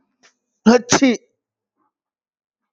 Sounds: Sneeze